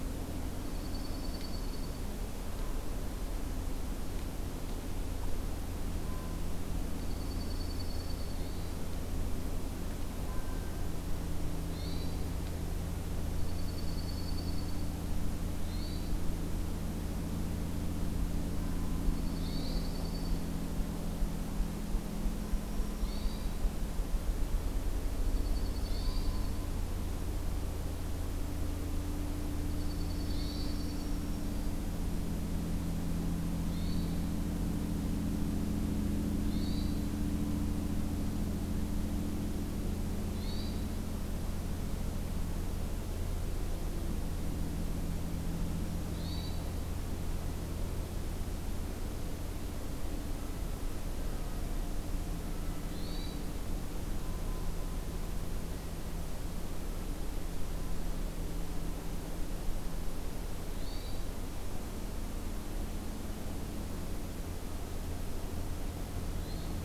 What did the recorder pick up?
Dark-eyed Junco, Hermit Thrush, Black-throated Green Warbler